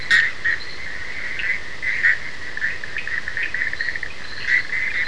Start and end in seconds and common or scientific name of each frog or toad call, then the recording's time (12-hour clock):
1.3	3.6	Cochran's lime tree frog
2:30am